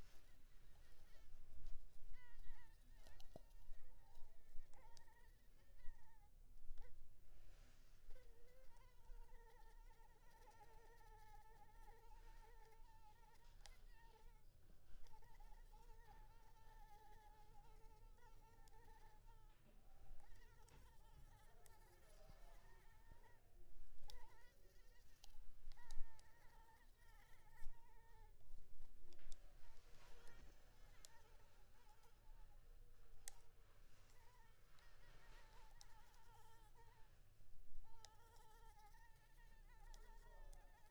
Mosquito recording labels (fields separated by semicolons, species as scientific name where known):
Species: Anopheles maculipalpis; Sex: female; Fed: unfed; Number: one; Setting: cup